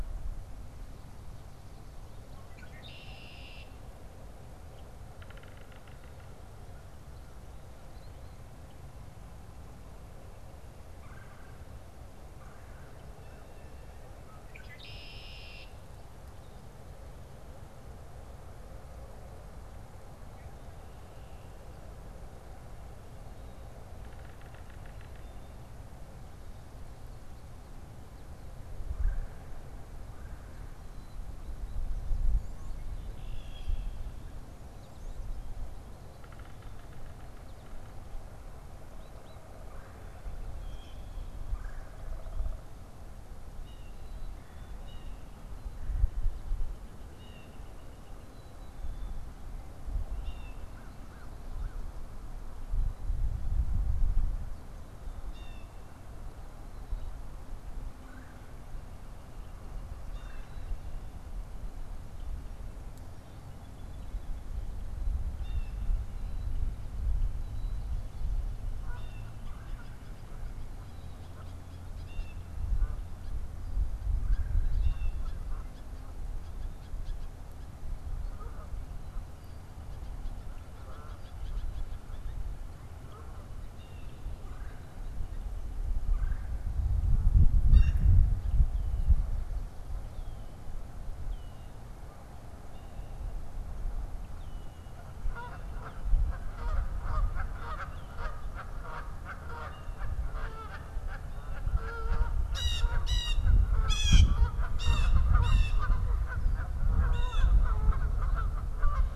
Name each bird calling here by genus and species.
Agelaius phoeniceus, Sphyrapicus varius, Melanerpes carolinus, Cyanocitta cristata, Corvus brachyrhynchos, Poecile atricapillus, Branta canadensis, unidentified bird